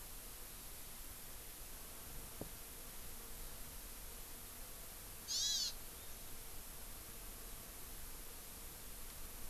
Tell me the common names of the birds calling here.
Hawaii Amakihi